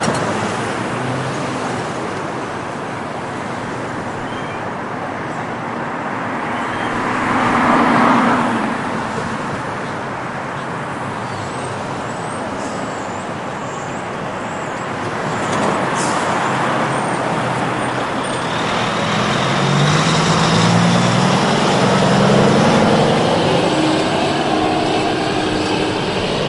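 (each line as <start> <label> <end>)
0.0 Sounds of a busy street. 26.5
3.9 Birds chirping in the far distance. 4.9
6.2 Birds chirping in the far distance. 7.1
6.6 Cars passing by on a busy road. 9.7
11.3 A group of birds chirps in the distance. 18.3
18.3 A car driving away in the distance. 26.5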